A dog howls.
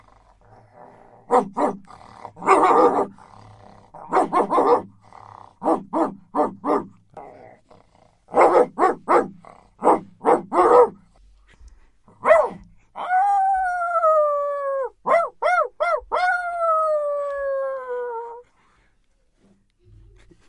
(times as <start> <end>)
12.9 15.0, 16.1 18.5